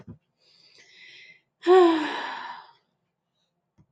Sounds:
Sigh